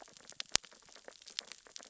{"label": "biophony, sea urchins (Echinidae)", "recorder": "SoundTrap 600 or HydroMoth"}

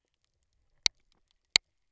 {"label": "biophony, double pulse", "recorder": "SoundTrap 300"}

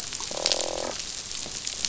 {"label": "biophony, croak", "recorder": "SoundTrap 500"}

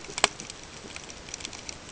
{"label": "ambient", "recorder": "HydroMoth"}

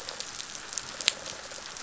{"label": "biophony", "recorder": "SoundTrap 500"}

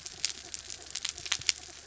{"label": "anthrophony, mechanical", "recorder": "SoundTrap 300"}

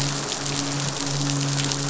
{"label": "biophony, midshipman", "recorder": "SoundTrap 500"}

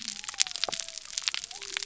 {"label": "biophony", "recorder": "SoundTrap 300"}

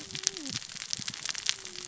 {"label": "biophony, cascading saw", "recorder": "SoundTrap 600 or HydroMoth"}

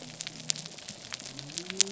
{"label": "biophony", "recorder": "SoundTrap 300"}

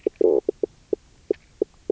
{"label": "biophony, knock croak", "recorder": "SoundTrap 300"}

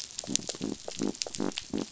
{"label": "biophony", "recorder": "SoundTrap 500"}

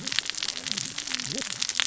{"label": "biophony, cascading saw", "recorder": "SoundTrap 600 or HydroMoth"}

